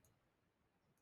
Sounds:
Throat clearing